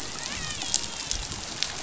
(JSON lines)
{"label": "biophony, dolphin", "recorder": "SoundTrap 500"}